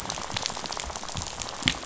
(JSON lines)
{"label": "biophony, rattle", "recorder": "SoundTrap 500"}